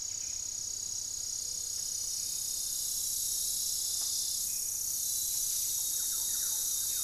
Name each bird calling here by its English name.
Black-faced Antthrush, Buff-breasted Wren, Gray-fronted Dove, Thrush-like Wren